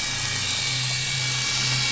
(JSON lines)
{"label": "anthrophony, boat engine", "recorder": "SoundTrap 500"}